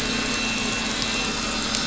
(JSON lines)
{"label": "anthrophony, boat engine", "recorder": "SoundTrap 500"}